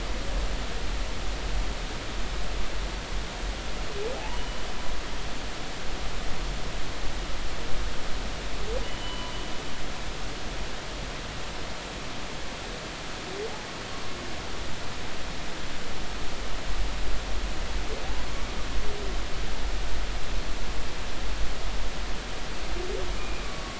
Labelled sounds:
4.2	4.6	humpback whale, 0.80 to 3.0 kHz
8.8	9.3	humpback whale, 0.93 to 3.1 kHz
23.2	23.7	humpback whale, 1.1 to 2.5 kHz

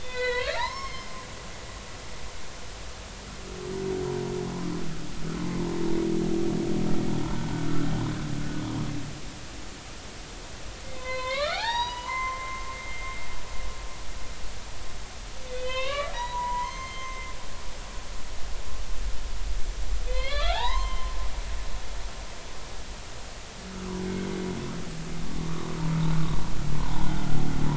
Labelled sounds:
0.0	1.2	humpback whale, 0.83 to 6.5 kHz
7.3	7.7	humpback whale, 1.4 to 1.5 kHz
10.8	13.2	humpback whale, 0.80 to 6.9 kHz
15.5	17.3	humpback whale, 0.86 to 6.5 kHz
20.1	21.2	humpback whale, 0.80 to 4.2 kHz
26.8	27.1	humpback whale, 0.80 to 1.1 kHz

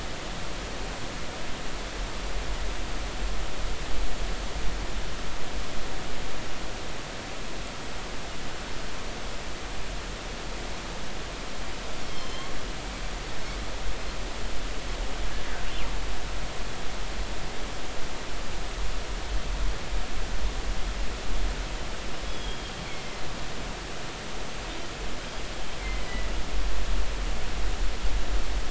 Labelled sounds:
12.0	12.5	killer whale, northern resident, G clan, 3.0 to 5.4 kHz
22.3	22.7	killer whale, northern resident, G clan, 3.2 to 3.5 kHz
25.8	26.3	killer whale, northern resident, G clan, 1.9 to 2.1 kHz

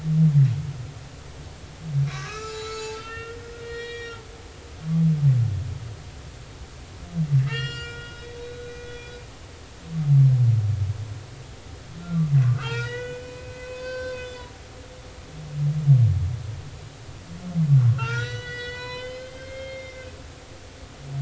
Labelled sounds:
2.1	4.2	humpback whale, 0.83 to 7.1 kHz
7.4	9.2	humpback whale, 1.2 to 7.6 kHz
12.4	14.5	humpback whale, 0.90 to 6.7 kHz
17.9	20.1	humpback whale, 0.86 to 6.0 kHz

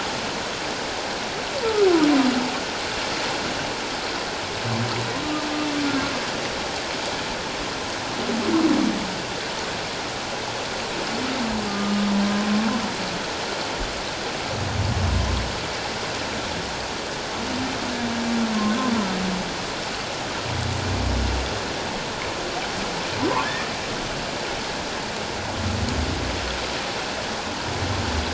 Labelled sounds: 11.7	12.0	humpback whale, 1.16 to 1.25 kHz

